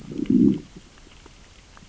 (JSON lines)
{"label": "biophony, growl", "recorder": "SoundTrap 600 or HydroMoth"}